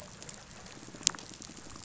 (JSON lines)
{"label": "biophony, pulse", "recorder": "SoundTrap 500"}